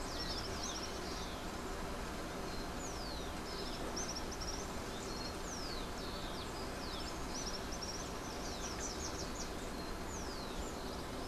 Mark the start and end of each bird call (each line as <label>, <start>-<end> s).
Rufous-collared Sparrow (Zonotrichia capensis), 0.0-11.2 s
Slate-throated Redstart (Myioborus miniatus), 8.0-9.6 s